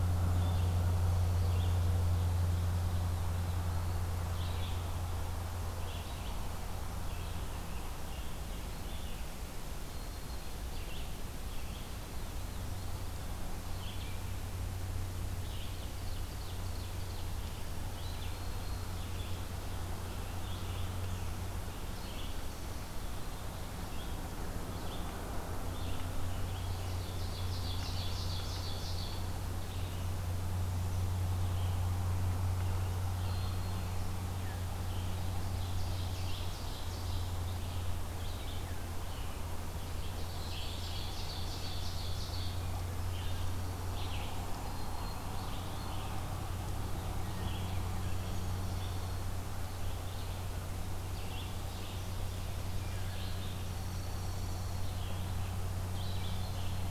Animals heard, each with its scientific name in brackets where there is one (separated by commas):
Dark-eyed Junco (Junco hyemalis), Black-throated Green Warbler (Setophaga virens), Scarlet Tanager (Piranga olivacea), Black-throated Blue Warbler (Setophaga caerulescens), Red-eyed Vireo (Vireo olivaceus), Ovenbird (Seiurus aurocapilla)